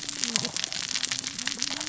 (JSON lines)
{"label": "biophony, cascading saw", "recorder": "SoundTrap 600 or HydroMoth"}